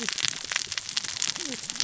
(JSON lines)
{"label": "biophony, cascading saw", "recorder": "SoundTrap 600 or HydroMoth"}